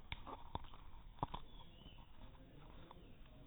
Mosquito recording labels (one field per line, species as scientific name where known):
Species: no mosquito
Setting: cup